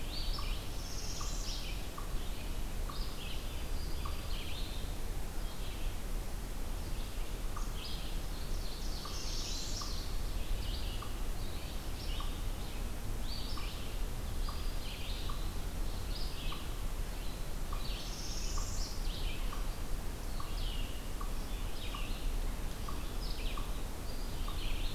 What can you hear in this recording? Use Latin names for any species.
unknown mammal, Vireo olivaceus, Setophaga americana, Setophaga virens, Seiurus aurocapilla